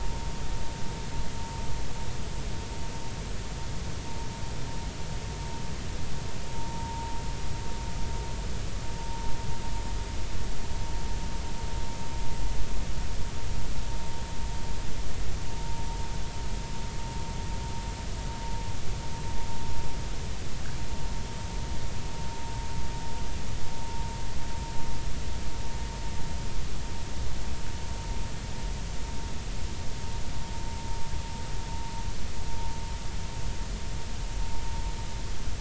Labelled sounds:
6.6	7.1	vessel noise, 0.86 to 0.96 kHz

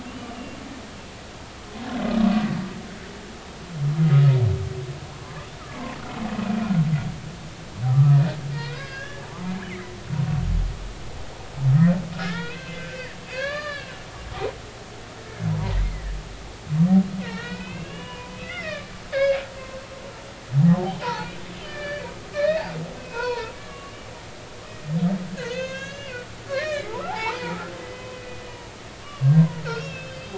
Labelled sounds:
0.3	0.6	humpback whale, 2.7 to 2.9 kHz
5.1	6.0	humpback whale, 0.93 to 1.4 kHz
6.4	6.7	humpback whale, 2.3 to 2.7 kHz
7.9	9.3	humpback whale, 1.1 to 5.0 kHz
9.7	10.0	humpback whale, 1.9 to 2.4 kHz
12.2	14.9	humpback whale, 0.99 to 4.9 kHz
15.5	16.2	humpback whale, 0.86 to 2.2 kHz
17.2	19.4	humpback whale, 0.83 to 5.1 kHz
20.6	21.3	humpback whale, 0.80 to 1.5 kHz
21.7	22.0	humpback whale, 1.7 to 4.8 kHz
22.3	24.1	humpback whale, 0.86 to 4.6 kHz
24.5	28.7	humpback whale, 0.80 to 6.9 kHz
29.0	30.3	humpback whale, 0.93 to 5.6 kHz

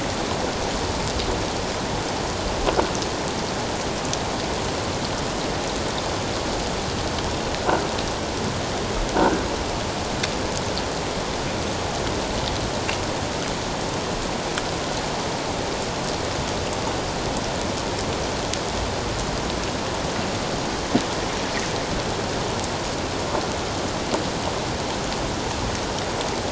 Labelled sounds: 9.2	9.4	croaking sound likely from a nearby submerged object, 1.4 to 1.6 kHz

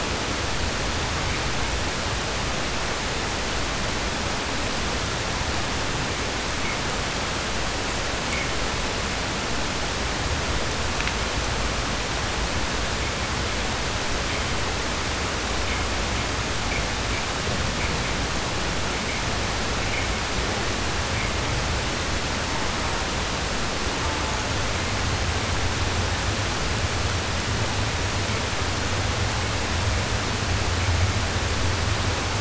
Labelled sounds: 22.4	23.2	killer whale, southern resident, 0.42 to 1.4 kHz
23.9	24.7	killer whale, southern resident, 0.36 to 1.4 kHz

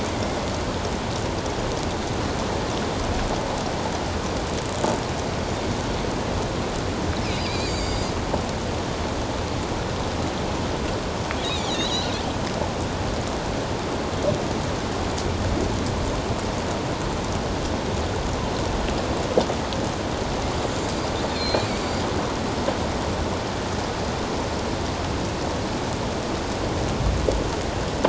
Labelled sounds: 0.1	0.4	killer whale, offshore, 2.0 to 2.2 kHz
7.4	8.1	killer whale, offshore, 2.1 to 5.1 kHz
11.4	12.1	killer whale, offshore, 2.9 to 7.0 kHz
20.8	21.7	killer whale, offshore, 2.2 to 4.9 kHz

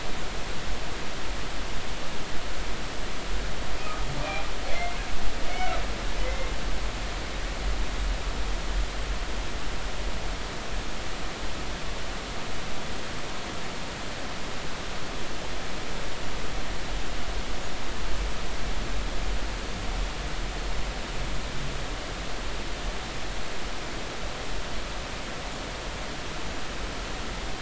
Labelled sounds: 3.8	4.1	humpback whale, 1.1 to 1.3 kHz
4.7	5.0	humpback whale, 2.0 to 2.2 kHz
5.5	6.5	humpback whale, 2.0 to 2.3 kHz

